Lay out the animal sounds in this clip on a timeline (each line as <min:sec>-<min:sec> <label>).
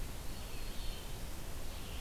0:00.0-0:02.0 Red-eyed Vireo (Vireo olivaceus)
0:00.1-0:01.5 Black-throated Green Warbler (Setophaga virens)